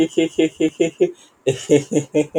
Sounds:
Laughter